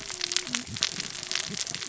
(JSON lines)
{"label": "biophony, cascading saw", "recorder": "SoundTrap 600 or HydroMoth"}